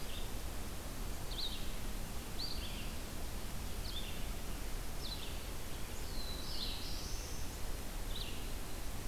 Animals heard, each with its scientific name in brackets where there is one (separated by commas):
Red-eyed Vireo (Vireo olivaceus), Black-throated Blue Warbler (Setophaga caerulescens)